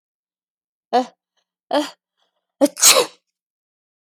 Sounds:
Sneeze